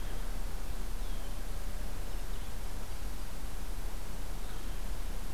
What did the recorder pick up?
Red-winged Blackbird